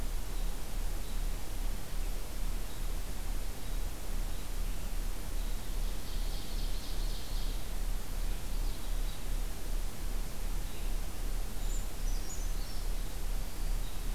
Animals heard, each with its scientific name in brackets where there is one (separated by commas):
American Robin (Turdus migratorius), Ovenbird (Seiurus aurocapilla), Brown Creeper (Certhia americana)